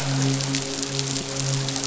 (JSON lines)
{"label": "biophony, midshipman", "recorder": "SoundTrap 500"}